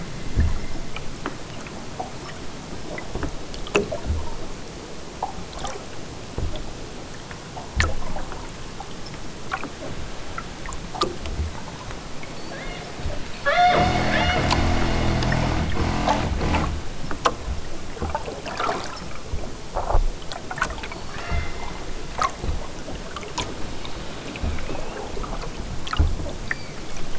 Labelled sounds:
12.3	12.9	killer whale, southern Alaska resident, 1.3 to 5.6 kHz
13.4	14.5	killer whale, southern Alaska resident, 0.28 to 7.2 kHz
20.9	21.7	killer whale, southern Alaska resident, 0.92 to 5.8 kHz
26.4	27.1	killer whale, southern Alaska resident, 0.96 to 4.9 kHz

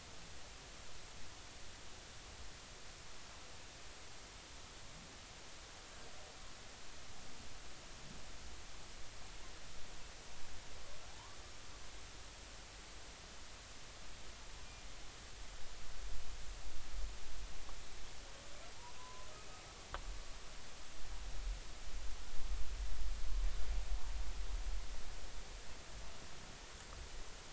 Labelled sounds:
11.1	11.4	humpback whale, 0.80 to 1.2 kHz
18.9	19.3	humpback whale, 0.96 to 1.1 kHz

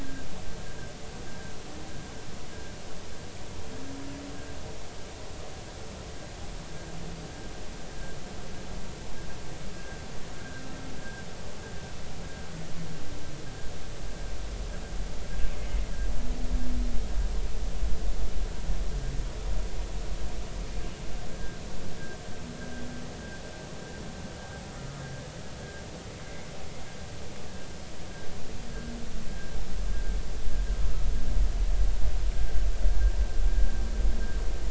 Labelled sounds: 15.5	15.8	humpback whale, 2.0 to 2.2 kHz
21.3	21.6	humpback whale, 1.5 to 1.7 kHz
26.3	26.5	humpback whale, 2.0 to 2.2 kHz

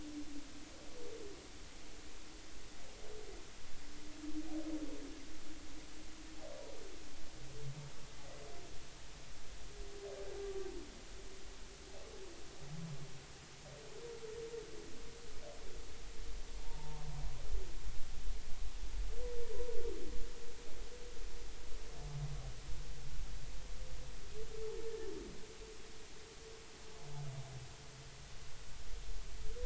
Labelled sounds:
16.6	17.0	humpback whale, 0.86 to 0.99 kHz

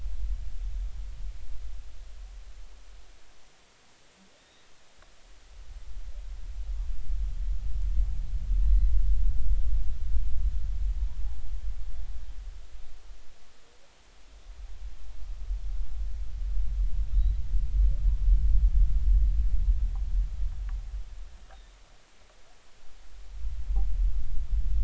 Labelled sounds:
4.4	4.6	humpback whale, 3.5 to 3.9 kHz

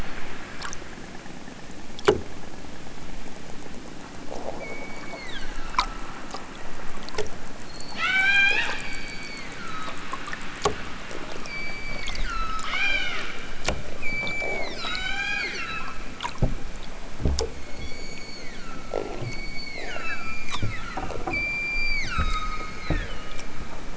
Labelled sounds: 4.6	6.0	killer whale, southern Alaska resident, 0.92 to 8.0 kHz
7.6	10.2	killer whale, southern Alaska resident, 0.55 to 8.0 kHz
11.4	13.3	killer whale, southern Alaska resident, 0.50 to 8.0 kHz
13.9	16.0	killer whale, southern Alaska resident, 0.46 to 8.0 kHz
17.5	23.5	killer whale, southern Alaska resident, 0.87 to 8.0 kHz

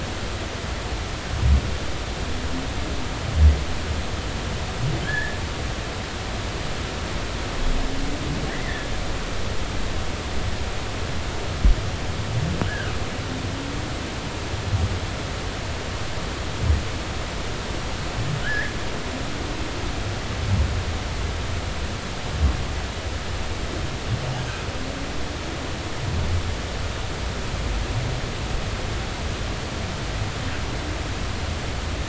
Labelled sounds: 5.0	5.4	humpback whale, 1.5 to 2.0 kHz
8.5	8.9	humpback whale, 1.6 to 2.1 kHz
12.7	12.9	humpback whale, 1.4 to 1.8 kHz
18.4	18.7	humpback whale, 1.4 to 2.2 kHz

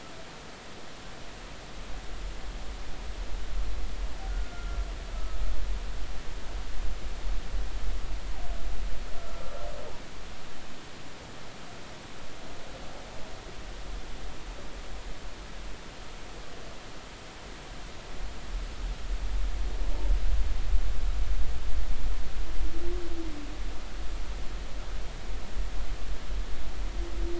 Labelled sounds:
4.3	4.8	humpback whale, 1.3 to 1.5 kHz
5.1	5.4	humpback whale, 1.2 to 1.3 kHz

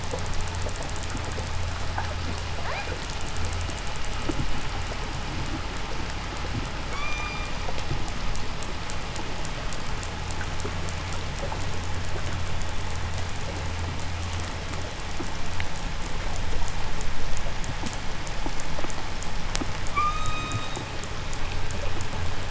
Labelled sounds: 2.4	3.1	killer whale, 0.38 to 5.5 kHz
6.7	7.8	killer whale, call S16, 0.91 to 8.0 kHz
19.9	21.0	killer whale, call S16, 0.99 to 8.0 kHz

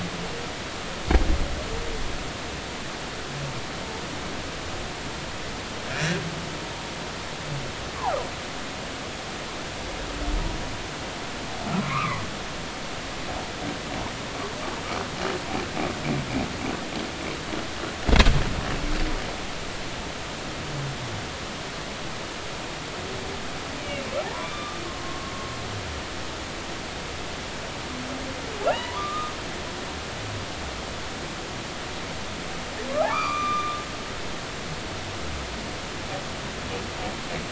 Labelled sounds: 5.9	6.2	humpback whale, 1.3 to 1.9 kHz
11.8	12.2	humpback whale, 0.96 to 2.8 kHz
23.8	25.3	humpback whale, 0.80 to 3.6 kHz
28.6	29.3	humpback whale, 0.80 to 3.0 kHz
33.0	33.8	humpback whale, 0.80 to 6.1 kHz

